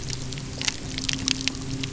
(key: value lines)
label: anthrophony, boat engine
recorder: SoundTrap 300